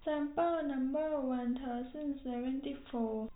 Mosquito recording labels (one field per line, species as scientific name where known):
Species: no mosquito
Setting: cup